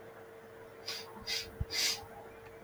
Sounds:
Sniff